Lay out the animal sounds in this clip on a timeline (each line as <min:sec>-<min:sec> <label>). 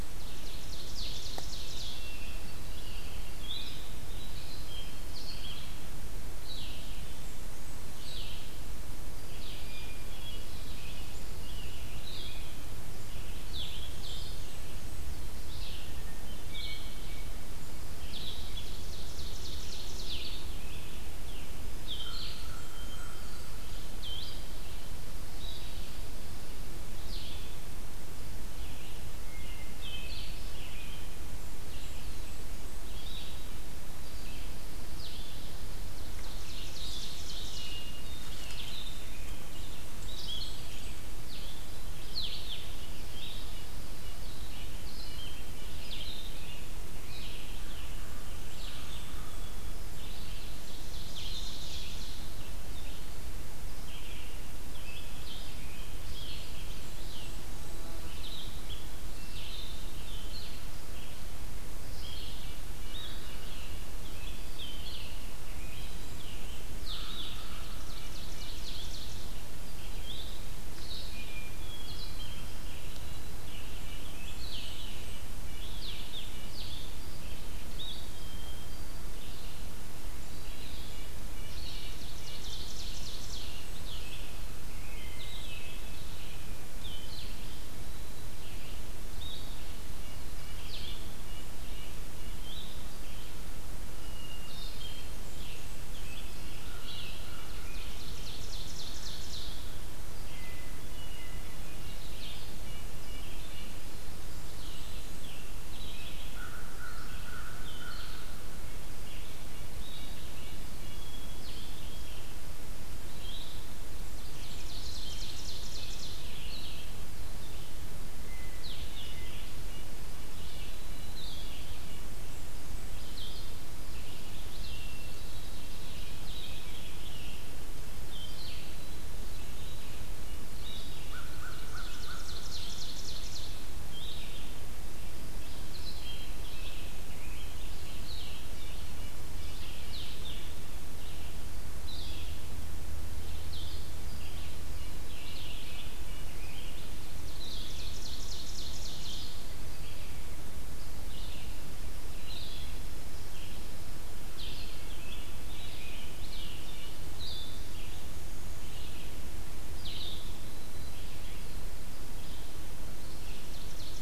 0:00.0-0:24.4 Blue-headed Vireo (Vireo solitarius)
0:00.0-0:24.7 Red-eyed Vireo (Vireo olivaceus)
0:00.0-0:02.1 Ovenbird (Seiurus aurocapilla)
0:01.4-0:03.0 Hermit Thrush (Catharus guttatus)
0:06.6-0:08.5 Blackburnian Warbler (Setophaga fusca)
0:09.5-0:10.8 Hermit Thrush (Catharus guttatus)
0:09.8-0:12.5 American Robin (Turdus migratorius)
0:13.5-0:15.1 Blackburnian Warbler (Setophaga fusca)
0:15.8-0:17.3 Hermit Thrush (Catharus guttatus)
0:18.4-0:20.6 Ovenbird (Seiurus aurocapilla)
0:22.0-0:23.4 American Crow (Corvus brachyrhynchos)
0:22.0-0:23.6 Blackburnian Warbler (Setophaga fusca)
0:22.5-0:23.7 Hermit Thrush (Catharus guttatus)
0:25.1-0:26.7 Pine Warbler (Setophaga pinus)
0:25.3-2:22.5 Red-eyed Vireo (Vireo olivaceus)
0:25.4-1:17.1 Blue-headed Vireo (Vireo solitarius)
0:29.3-0:30.3 Hermit Thrush (Catharus guttatus)
0:31.3-0:33.0 Blackburnian Warbler (Setophaga fusca)
0:35.8-0:37.9 Ovenbird (Seiurus aurocapilla)
0:37.6-0:38.8 Hermit Thrush (Catharus guttatus)
0:39.4-0:41.0 Blackburnian Warbler (Setophaga fusca)
0:43.3-0:45.6 Red-breasted Nuthatch (Sitta canadensis)
0:47.9-0:49.5 Blackburnian Warbler (Setophaga fusca)
0:50.5-0:52.4 Ovenbird (Seiurus aurocapilla)
0:56.3-0:57.9 Blackburnian Warbler (Setophaga fusca)
1:02.3-1:04.3 Red-breasted Nuthatch (Sitta canadensis)
1:06.7-1:09.5 Ovenbird (Seiurus aurocapilla)
1:11.2-1:12.3 Hermit Thrush (Catharus guttatus)
1:12.5-1:14.5 Red-breasted Nuthatch (Sitta canadensis)
1:13.8-1:15.4 Blackburnian Warbler (Setophaga fusca)
1:18.2-1:19.1 Hermit Thrush (Catharus guttatus)
1:20.4-1:22.5 Red-breasted Nuthatch (Sitta canadensis)
1:21.5-1:23.6 Ovenbird (Seiurus aurocapilla)
1:22.9-1:24.3 Blackburnian Warbler (Setophaga fusca)
1:23.5-2:22.3 Blue-headed Vireo (Vireo solitarius)
1:24.7-1:26.0 Hermit Thrush (Catharus guttatus)
1:29.9-1:32.4 Red-breasted Nuthatch (Sitta canadensis)
1:34.4-1:35.1 Hermit Thrush (Catharus guttatus)
1:34.7-1:36.4 Blackburnian Warbler (Setophaga fusca)
1:35.9-1:37.5 Red-breasted Nuthatch (Sitta canadensis)
1:37.6-1:39.7 Ovenbird (Seiurus aurocapilla)
1:40.3-1:41.5 Hermit Thrush (Catharus guttatus)
1:41.6-1:43.7 Red-breasted Nuthatch (Sitta canadensis)
1:44.1-1:45.3 Blackburnian Warbler (Setophaga fusca)
1:48.9-1:50.7 Red-breasted Nuthatch (Sitta canadensis)
1:50.7-1:52.1 Hermit Thrush (Catharus guttatus)
1:54.1-1:56.5 Ovenbird (Seiurus aurocapilla)
1:58.2-2:01.2 Red-breasted Nuthatch (Sitta canadensis)
2:04.8-2:05.9 Hermit Thrush (Catharus guttatus)
2:09.2-2:10.8 Red-breasted Nuthatch (Sitta canadensis)
2:10.8-2:13.8 Ovenbird (Seiurus aurocapilla)
2:11.1-2:12.5 American Crow (Corvus brachyrhynchos)
2:16.0-2:19.8 Red-breasted Nuthatch (Sitta canadensis)
2:23.3-2:44.0 Red-eyed Vireo (Vireo olivaceus)
2:23.4-2:44.0 Blue-headed Vireo (Vireo solitarius)
2:24.4-2:26.3 Red-breasted Nuthatch (Sitta canadensis)
2:27.2-2:29.5 Ovenbird (Seiurus aurocapilla)
2:34.4-2:37.0 Red-breasted Nuthatch (Sitta canadensis)
2:40.2-2:41.1 Black-throated Green Warbler (Setophaga virens)
2:43.4-2:44.0 Ovenbird (Seiurus aurocapilla)